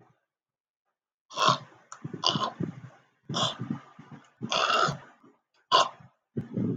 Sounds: Throat clearing